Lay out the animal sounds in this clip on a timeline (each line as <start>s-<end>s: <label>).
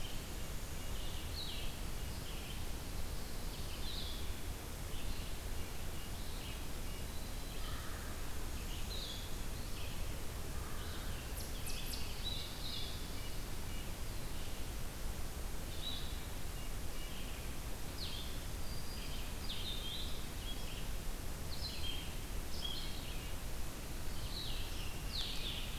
0.0s-1.3s: Red-breasted Nuthatch (Sitta canadensis)
0.0s-9.4s: Blue-headed Vireo (Vireo solitarius)
0.0s-11.3s: Red-eyed Vireo (Vireo olivaceus)
5.5s-7.2s: Red-breasted Nuthatch (Sitta canadensis)
7.5s-8.3s: American Crow (Corvus brachyrhynchos)
10.4s-11.2s: American Crow (Corvus brachyrhynchos)
11.2s-12.2s: Red Squirrel (Tamiasciurus hudsonicus)
12.2s-25.8s: Blue-headed Vireo (Vireo solitarius)
12.3s-25.8s: Red-eyed Vireo (Vireo olivaceus)
12.3s-14.1s: Red-breasted Nuthatch (Sitta canadensis)
16.4s-17.3s: Red-breasted Nuthatch (Sitta canadensis)
18.1s-19.3s: Black-throated Green Warbler (Setophaga virens)
22.7s-23.4s: Red-breasted Nuthatch (Sitta canadensis)